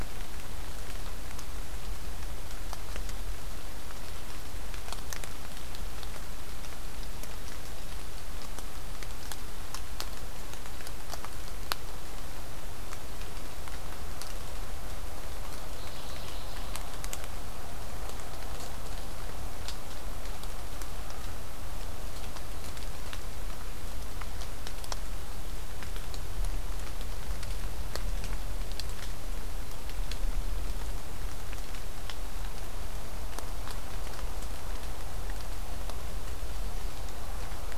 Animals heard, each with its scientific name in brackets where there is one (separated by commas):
Mourning Warbler (Geothlypis philadelphia)